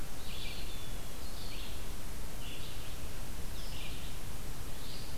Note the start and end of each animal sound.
[0.00, 5.17] Red-eyed Vireo (Vireo olivaceus)
[0.07, 1.19] Eastern Wood-Pewee (Contopus virens)

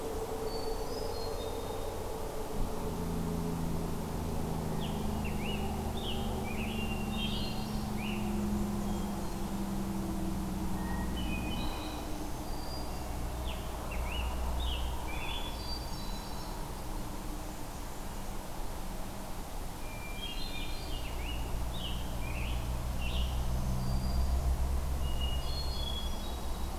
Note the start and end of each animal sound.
[0.24, 1.99] Hermit Thrush (Catharus guttatus)
[4.60, 8.34] Scarlet Tanager (Piranga olivacea)
[6.65, 8.03] Hermit Thrush (Catharus guttatus)
[10.62, 12.24] Hermit Thrush (Catharus guttatus)
[11.49, 13.36] Black-throated Green Warbler (Setophaga virens)
[13.22, 15.70] Scarlet Tanager (Piranga olivacea)
[15.31, 16.74] Hermit Thrush (Catharus guttatus)
[19.60, 21.08] Hermit Thrush (Catharus guttatus)
[20.69, 23.32] Scarlet Tanager (Piranga olivacea)
[22.90, 24.65] Black-throated Green Warbler (Setophaga virens)
[24.84, 26.78] Hermit Thrush (Catharus guttatus)

